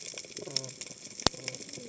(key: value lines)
label: biophony, cascading saw
recorder: HydroMoth